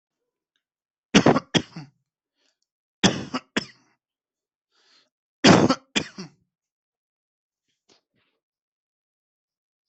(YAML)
expert_labels:
- quality: good
  cough_type: dry
  dyspnea: false
  wheezing: false
  stridor: false
  choking: false
  congestion: false
  nothing: true
  diagnosis: upper respiratory tract infection
  severity: mild
age: 42
gender: male
respiratory_condition: false
fever_muscle_pain: false
status: healthy